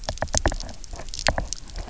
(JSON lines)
{"label": "biophony, knock", "recorder": "SoundTrap 300"}